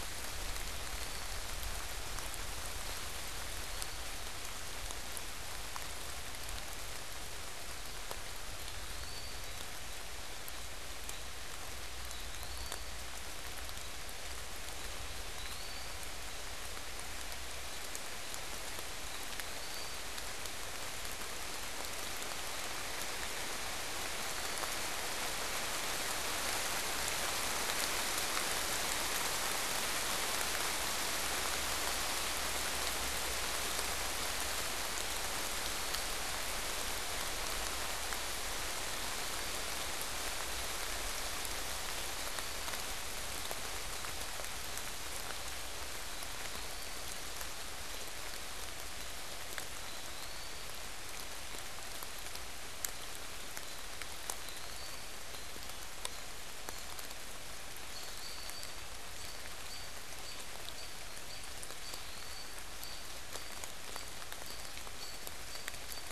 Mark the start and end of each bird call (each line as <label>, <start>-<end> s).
Eastern Wood-Pewee (Contopus virens), 0.6-1.6 s
Eastern Wood-Pewee (Contopus virens), 3.2-4.2 s
Eastern Wood-Pewee (Contopus virens), 8.4-9.8 s
Eastern Wood-Pewee (Contopus virens), 11.9-13.0 s
Eastern Wood-Pewee (Contopus virens), 14.8-16.0 s
Eastern Wood-Pewee (Contopus virens), 19.0-20.0 s
American Robin (Turdus migratorius), 45.7-57.2 s
Eastern Wood-Pewee (Contopus virens), 46.2-47.2 s
Eastern Wood-Pewee (Contopus virens), 49.8-50.8 s
Eastern Wood-Pewee (Contopus virens), 54.5-55.3 s
American Robin (Turdus migratorius), 57.7-66.1 s
Eastern Wood-Pewee (Contopus virens), 57.9-58.6 s
Eastern Wood-Pewee (Contopus virens), 61.6-62.6 s